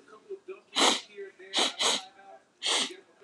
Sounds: Sniff